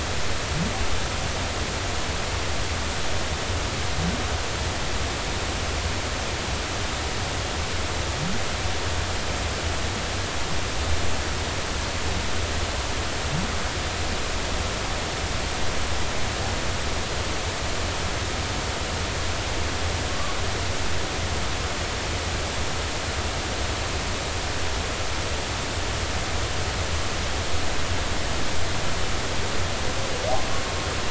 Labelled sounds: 20.1	20.4	humpback whale, 1.1 to 1.2 kHz

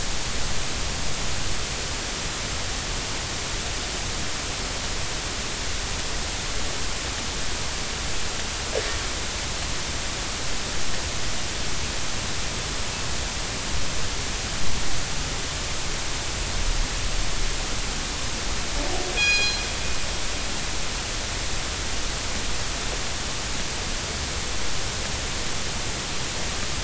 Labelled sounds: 19.2	19.6	killer whale, northern resident, G clan, call N24ii, 1.6 to 5.8 kHz

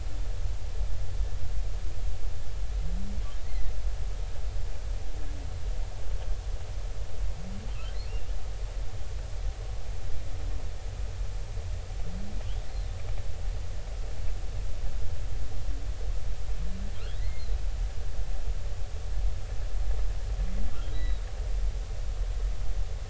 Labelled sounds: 3.5	3.7	humpback whale, 1.8 to 2.1 kHz
17.2	17.6	humpback whale, 1.9 to 4.3 kHz
20.9	21.3	humpback whale, 3.6 to 4.1 kHz

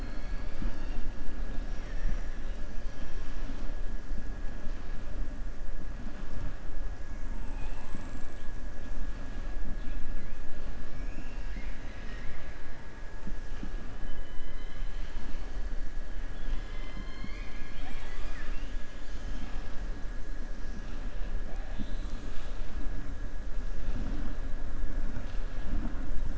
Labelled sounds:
14.3	15.1	killer whale, southern resident, 2.1 to 4.1 kHz

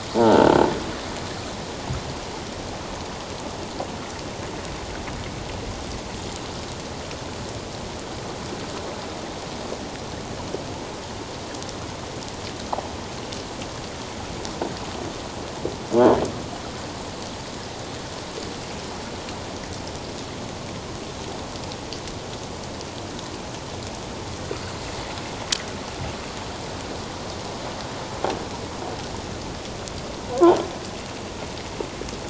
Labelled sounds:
0.2	0.5	croaking sound likely from a nearby submerged object, 1.3 to 1.6 kHz
30.3	30.6	croaking sound likely from a nearby submerged object, 0.78 to 1.2 kHz

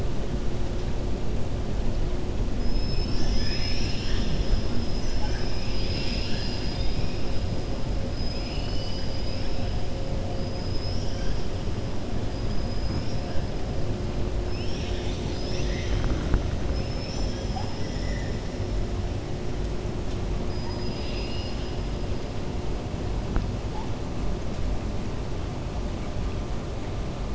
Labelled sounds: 20.5	21.7	killer whale, 2.4 to 5.6 kHz

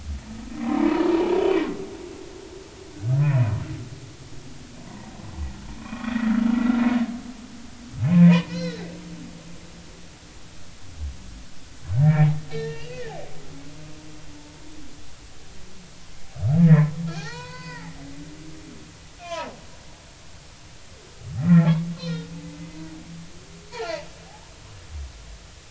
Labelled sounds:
0.7	1.8	humpback whale, 0.80 to 2.0 kHz
2.9	3.5	humpback whale, 1.4 to 2.6 kHz
4.9	6.3	humpback whale, 0.90 to 2.0 kHz
8.0	8.9	humpback whale, 1.4 to 5.8 kHz
12.0	13.2	humpback whale, 1.6 to 4.1 kHz
16.6	17.9	humpback whale, 0.80 to 6.6 kHz
19.2	19.6	humpback whale, 0.80 to 3.6 kHz
21.4	22.3	humpback whale, 1.3 to 4.4 kHz
23.7	24.5	humpback whale, 0.80 to 4.5 kHz

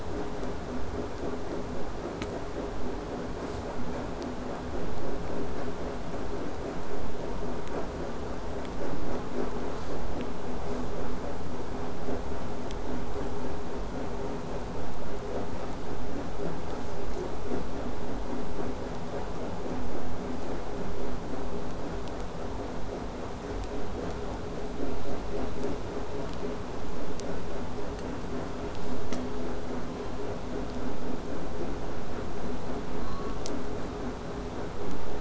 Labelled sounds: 3.4	3.6	killer whale, southern resident, buzz, 0.15 to 8.0 kHz
9.7	10.0	killer whale, southern resident, buzz, 0.31 to 8.0 kHz
10.6	10.9	killer whale, southern resident, buzz, 0.19 to 8.0 kHz
16.7	17.0	killer whale, southern resident, buzz, 1.4 to 8.0 kHz
20.3	20.5	killer whale, southern resident, buzz, 1.4 to 8.0 kHz
25.0	25.2	killer whale, southern resident, buzz, 0.85 to 8.0 kHz
28.8	29.0	killer whale, southern resident, buzz, 0.77 to 8.0 kHz

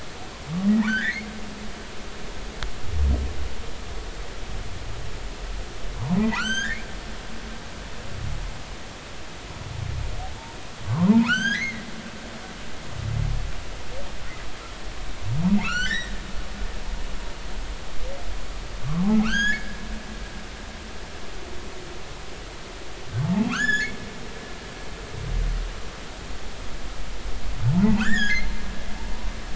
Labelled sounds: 0.7	1.3	humpback whale, 1.3 to 4.4 kHz
6.2	6.9	humpback whale, 1.1 to 8.0 kHz
10.8	11.9	humpback whale, 0.83 to 6.8 kHz
15.6	16.1	humpback whale, 1.1 to 7.6 kHz
19.0	19.8	humpback whale, 0.80 to 7.0 kHz
23.5	24.0	humpback whale, 0.93 to 7.1 kHz
28.0	28.6	humpback whale, 1.2 to 7.4 kHz

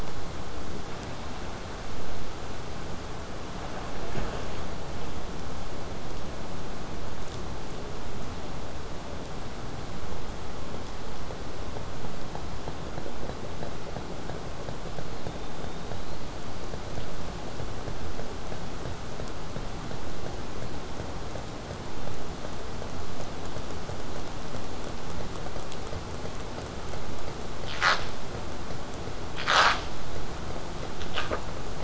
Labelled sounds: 15.2	16.3	killer whale, southern resident, 3.4 to 4.8 kHz

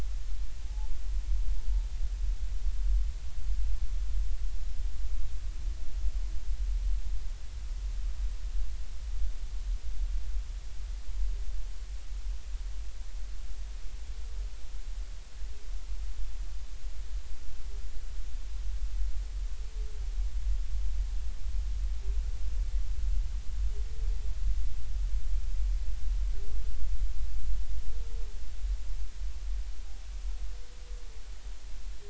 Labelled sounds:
0.7	1.0	humpback whale, 0.80 to 0.99 kHz

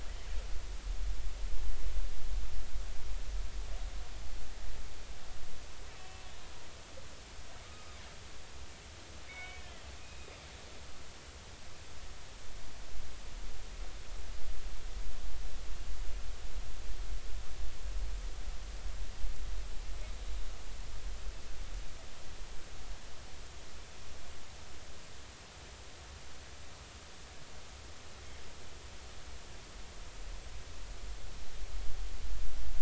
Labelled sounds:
6.0	6.2	killer whale, northern resident, A clan, call N03, 2.6 to 2.7 kHz
9.3	9.6	killer whale, northern resident, A clan, call N03, 2.1 to 3.7 kHz
10.0	10.4	killer whale, northern resident, A clan, call N20, 2.4 to 2.6 kHz

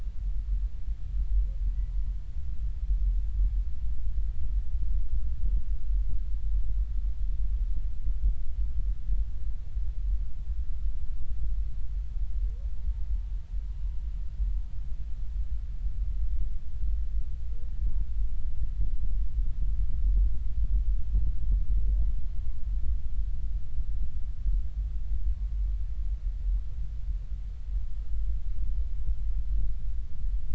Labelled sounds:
1.8	2.1	humpback whale, 0.96 to 1.1 kHz

